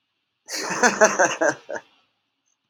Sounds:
Laughter